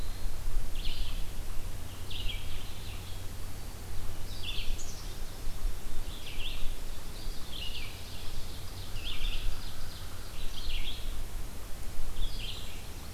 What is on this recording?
Eastern Wood-Pewee, Red-eyed Vireo, Ovenbird, Black-throated Green Warbler, Black-capped Chickadee, Yellow-rumped Warbler